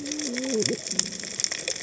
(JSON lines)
{"label": "biophony, cascading saw", "recorder": "HydroMoth"}